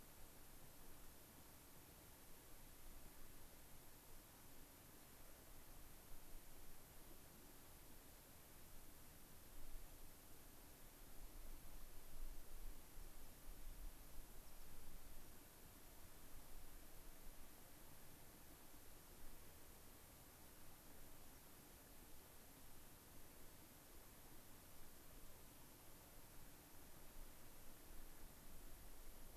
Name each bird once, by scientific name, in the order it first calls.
Anthus rubescens